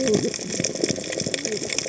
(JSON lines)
{"label": "biophony, cascading saw", "recorder": "HydroMoth"}